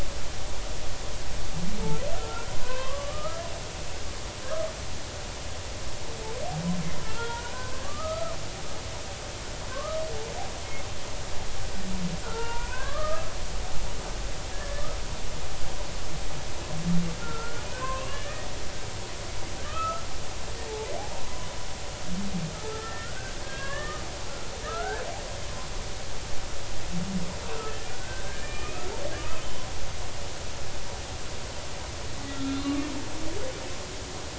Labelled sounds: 2.1	3.9	humpback whale, 0.96 to 2.7 kHz
7.1	8.4	humpback whale, 0.90 to 1.7 kHz
9.7	10.0	humpback whale, 0.99 to 1.3 kHz
12.2	13.3	humpback whale, 0.86 to 2.7 kHz
14.5	14.9	humpback whale, 1.6 to 1.9 kHz
17.2	18.5	humpback whale, 0.96 to 2.9 kHz
19.7	20.0	humpback whale, 2.4 to 2.7 kHz
20.6	21.5	humpback whale, 0.90 to 1.4 kHz
22.5	24.0	humpback whale, 1.0 to 3.3 kHz
24.7	25.0	humpback whale, 1.2 to 1.8 kHz
28.0	29.0	humpback whale, 1.1 to 2.7 kHz
32.3	32.8	humpback whale, 1.1 to 3.7 kHz

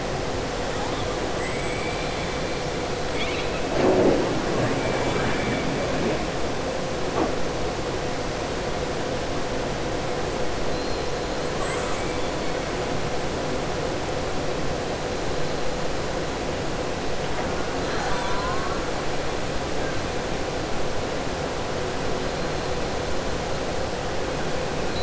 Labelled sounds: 1.3	2.3	killer whale, southern resident, 1.2 to 4.1 kHz
3.0	3.6	killer whale, southern resident, 2.2 to 4.5 kHz
4.7	5.5	killer whale, southern resident, 6.5 to 8.0 kHz
11.5	12.3	killer whale, southern resident, 0.58 to 8.0 kHz
17.8	18.8	killer whale, southern resident, 0.75 to 4.4 kHz

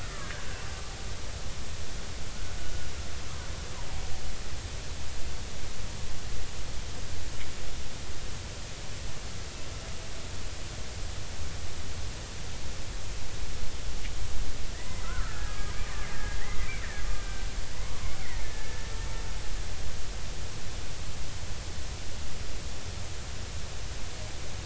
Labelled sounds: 14.7	16.4	killer whale, Bigg's (transient), 1.1 to 2.1 kHz
17.7	18.9	killer whale, Bigg's (transient), 0.90 to 2.2 kHz

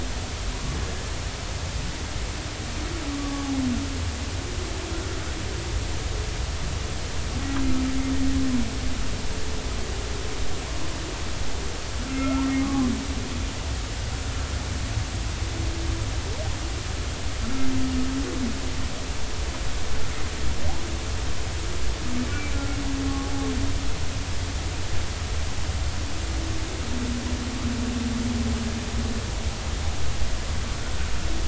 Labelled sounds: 3.2	3.5	humpback whale, 1.1 to 1.2 kHz
12.2	12.9	humpback whale, 0.99 to 1.4 kHz
22.2	22.5	humpback whale, 2.2 to 2.4 kHz

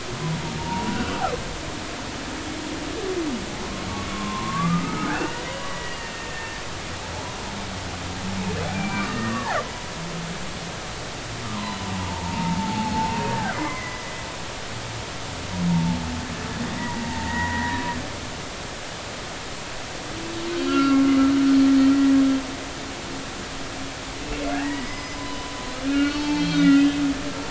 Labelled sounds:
0.6	1.0	humpback whale, 0.86 to 0.99 kHz
4.1	6.6	humpback whale, 0.90 to 3.0 kHz
8.7	9.6	humpback whale, 0.80 to 2.4 kHz
11.4	13.1	humpback whale, 0.80 to 1.3 kHz
13.5	14.1	humpback whale, 0.93 to 2.1 kHz
15.7	16.0	humpback whale, 0.83 to 0.96 kHz
16.8	17.8	humpback whale, 0.86 to 2.1 kHz
20.7	21.1	humpback whale, 1.1 to 2.8 kHz
24.5	25.5	humpback whale, 0.80 to 5.1 kHz
25.9	27.0	humpback whale, 0.83 to 4.8 kHz

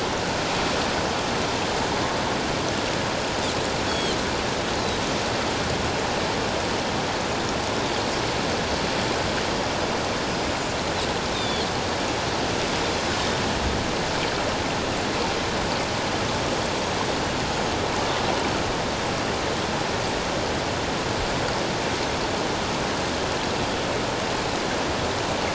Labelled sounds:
3.9	4.2	Pacific white-sided dolphin, 3.0 to 7.9 kHz
11.3	11.7	Pacific white-sided dolphin, 3.1 to 7.3 kHz
17.5	17.8	Pacific white-sided dolphin, 6.5 to 6.8 kHz

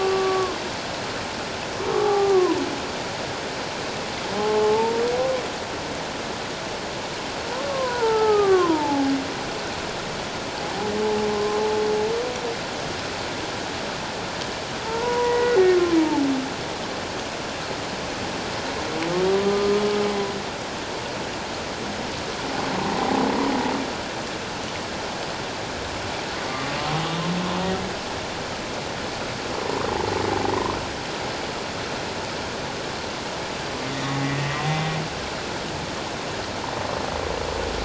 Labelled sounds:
0.3	0.6	humpback whale, 1.0 to 1.2 kHz
1.9	2.4	humpback whale, 0.78 to 1.2 kHz
4.3	5.0	humpback whale, 0.78 to 1.1 kHz
7.7	9.1	humpback whale, 0.78 to 1.5 kHz
11.3	11.6	humpback whale, 1.0 to 1.1 kHz
14.8	16.3	humpback whale, 0.81 to 2.0 kHz
19.4	19.8	humpback whale, 1.2 to 1.3 kHz
26.5	26.7	humpback whale, 1.0 to 1.2 kHz
34.3	34.9	humpback whale, 1.8 to 2.1 kHz

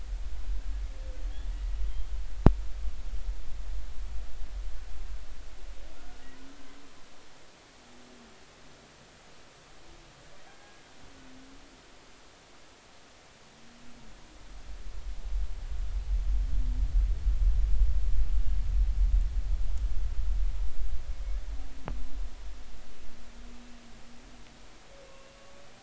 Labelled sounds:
10.5	10.8	humpback whale, 1.5 to 1.7 kHz
25.1	25.4	humpback whale, 2.6 to 2.8 kHz

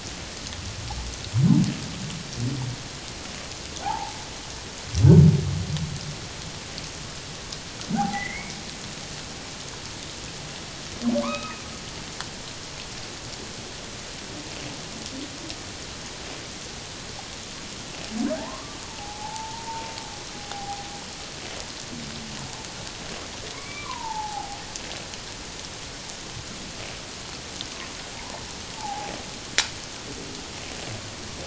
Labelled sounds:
3.8	4.2	humpback whale, 0.78 to 1.0 kHz
7.9	8.6	humpback whale, 0.78 to 2.4 kHz
11.2	11.7	humpback whale, 0.94 to 2.6 kHz
18.3	19.9	humpback whale, 0.78 to 1.3 kHz
20.3	20.9	humpback whale, 0.78 to 0.88 kHz
23.5	24.6	humpback whale, 0.78 to 2.4 kHz
28.8	29.1	humpback whale, 0.78 to 0.97 kHz

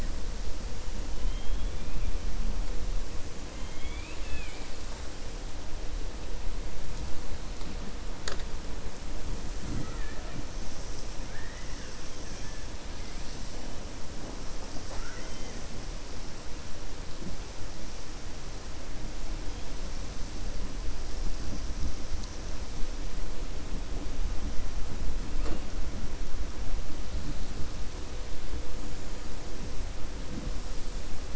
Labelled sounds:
1.2	1.9	killer whale, 3.0 to 3.5 kHz
3.5	4.7	killer whale, 1.6 to 4.2 kHz
11.2	11.9	killer whale, 1.6 to 3.0 kHz

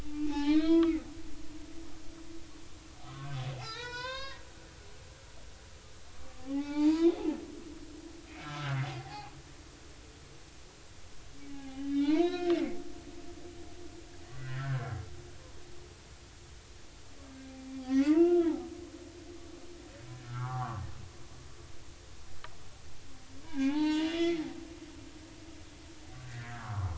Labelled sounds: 0.0	1.0	humpback whale, 0.80 to 4.4 kHz
3.0	4.4	humpback whale, 0.80 to 7.5 kHz
6.4	7.2	humpback whale, 0.80 to 4.9 kHz
8.4	8.8	humpback whale, 1.2 to 1.6 kHz
10.0	10.3	humpback whale, 0.80 to 0.90 kHz
11.4	12.5	humpback whale, 0.80 to 5.4 kHz
14.4	14.8	humpback whale, 1.4 to 2.0 kHz
17.8	18.5	humpback whale, 0.80 to 2.9 kHz
20.3	20.8	humpback whale, 0.80 to 1.7 kHz
23.4	24.4	humpback whale, 0.80 to 4.7 kHz
26.2	26.9	humpback whale, 0.86 to 2.0 kHz

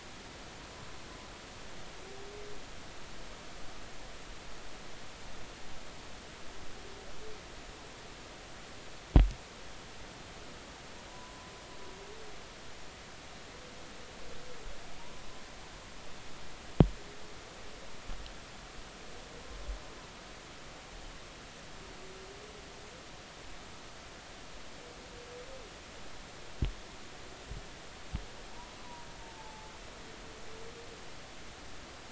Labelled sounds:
11.1	11.5	humpback whale, 0.96 to 1.1 kHz
15.0	15.2	humpback whale, 0.90 to 1.1 kHz
28.8	29.7	humpback whale, 0.83 to 1.1 kHz

